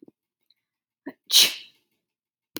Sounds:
Sneeze